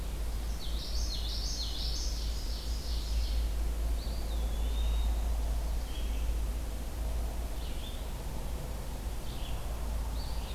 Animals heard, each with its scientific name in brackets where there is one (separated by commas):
Red-eyed Vireo (Vireo olivaceus), Ovenbird (Seiurus aurocapilla), Common Yellowthroat (Geothlypis trichas), Eastern Wood-Pewee (Contopus virens)